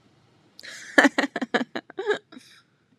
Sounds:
Laughter